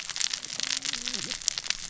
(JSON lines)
{"label": "biophony, cascading saw", "recorder": "SoundTrap 600 or HydroMoth"}